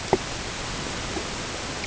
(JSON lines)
{"label": "ambient", "recorder": "HydroMoth"}